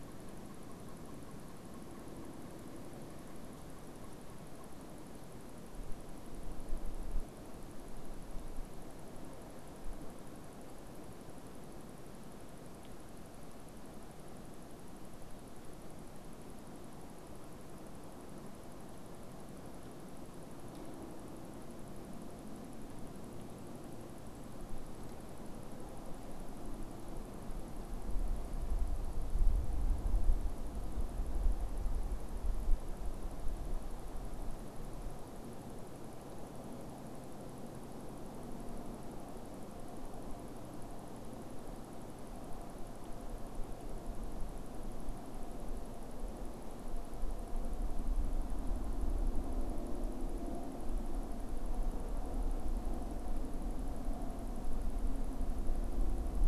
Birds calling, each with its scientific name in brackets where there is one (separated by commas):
Pileated Woodpecker (Dryocopus pileatus)